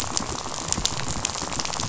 {"label": "biophony, rattle", "recorder": "SoundTrap 500"}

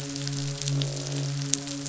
{"label": "biophony, midshipman", "recorder": "SoundTrap 500"}
{"label": "biophony, croak", "recorder": "SoundTrap 500"}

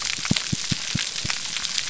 {"label": "biophony, pulse", "recorder": "SoundTrap 300"}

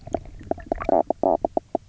{"label": "biophony, knock croak", "recorder": "SoundTrap 300"}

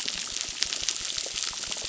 {"label": "biophony, crackle", "recorder": "SoundTrap 600"}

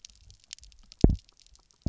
{"label": "biophony, double pulse", "recorder": "SoundTrap 300"}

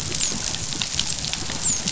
{"label": "biophony, dolphin", "recorder": "SoundTrap 500"}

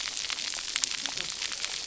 {"label": "biophony, cascading saw", "recorder": "SoundTrap 300"}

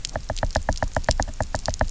{"label": "biophony, knock", "recorder": "SoundTrap 300"}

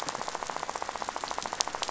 {"label": "biophony, rattle", "recorder": "SoundTrap 500"}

